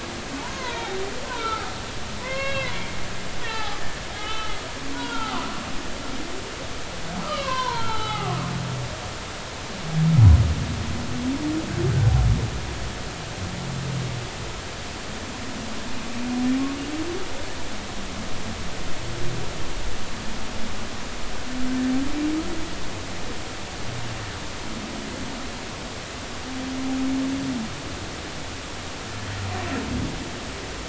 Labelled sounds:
0.4	1.7	humpback whale, 0.80 to 2.3 kHz
2.2	2.7	humpback whale, 0.96 to 4.4 kHz
3.4	4.6	humpback whale, 0.80 to 3.9 kHz
4.9	5.5	humpback whale, 0.80 to 3.4 kHz
7.2	9.4	humpback whale, 0.80 to 4.0 kHz

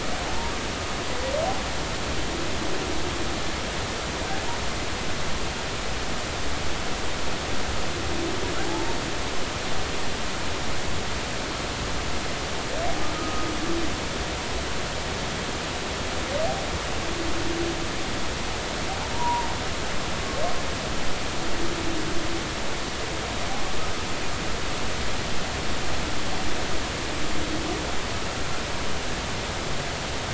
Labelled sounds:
8.6	9.0	humpback whale, 0.80 to 0.96 kHz
13.1	13.5	humpback whale, 1.2 to 1.3 kHz
19.1	19.5	humpback whale, 0.86 to 1.1 kHz

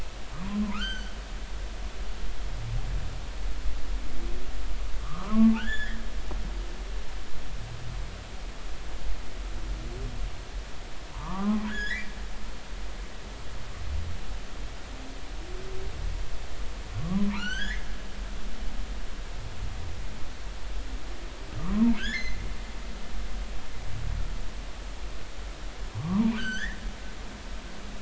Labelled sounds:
0.7	1.1	humpback whale, 1.2 to 6.3 kHz
5.0	6.0	humpback whale, 0.90 to 7.2 kHz
11.1	12.1	humpback whale, 0.80 to 5.2 kHz
17.1	17.9	humpback whale, 0.86 to 6.4 kHz
21.6	22.4	humpback whale, 0.86 to 3.6 kHz
26.0	26.8	humpback whale, 0.86 to 6.3 kHz

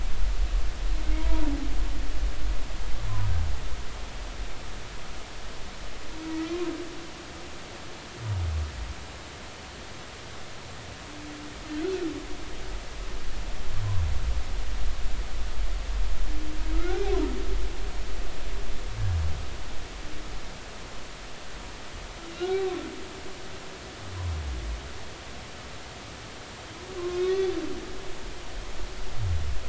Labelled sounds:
16.7	17.0	humpback whale, 1.2 to 1.6 kHz
22.4	22.6	humpback whale, 1.3 to 1.6 kHz
27.0	27.6	humpback whale, 0.99 to 3.8 kHz

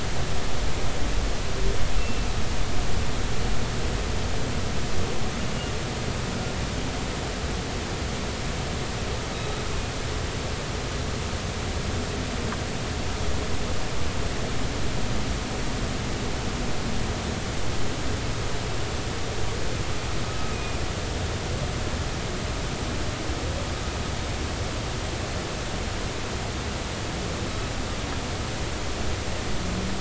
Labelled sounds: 2.0	2.3	humpback whale, 2.6 to 2.8 kHz
9.3	9.6	humpback whale, 3.8 to 3.9 kHz
20.3	20.8	humpback whale, 1.2 to 2.6 kHz

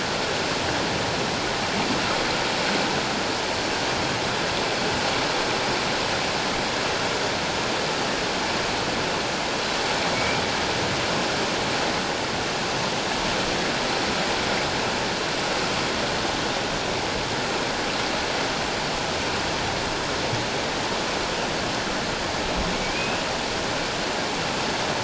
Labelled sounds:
10.1	10.4	humpback whale, 2.2 to 2.4 kHz
22.7	23.2	humpback whale, 2.2 to 2.7 kHz

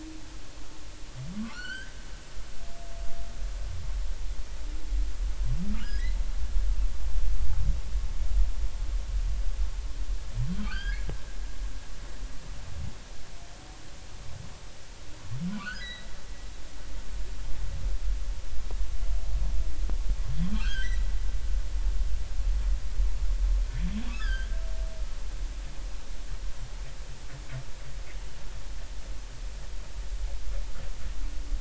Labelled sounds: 1.4	1.9	humpback whale, 0.99 to 4.8 kHz
5.7	6.1	humpback whale, 1.2 to 1.7 kHz
10.6	11.1	humpback whale, 1.1 to 5.0 kHz
15.5	16.1	humpback whale, 0.96 to 4.1 kHz
20.5	21.0	humpback whale, 1.1 to 2.1 kHz
24.1	24.5	humpback whale, 1.1 to 5.3 kHz

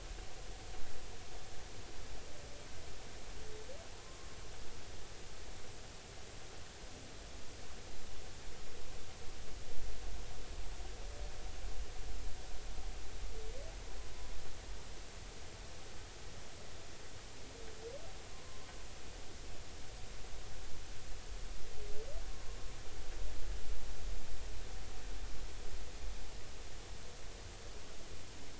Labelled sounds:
3.9	4.3	humpback whale, 0.96 to 1.2 kHz

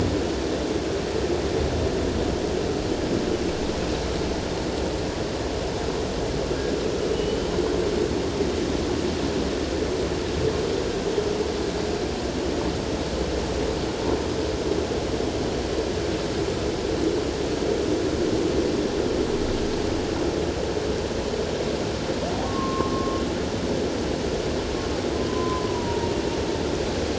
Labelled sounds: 7.1	7.5	humpback whale, 2.9 to 3.1 kHz
22.4	23.2	humpback whale, 1.0 to 1.2 kHz
25.3	26.1	humpback whale, 0.88 to 1.1 kHz

